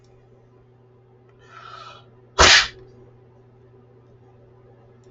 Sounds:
Sneeze